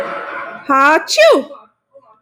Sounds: Sneeze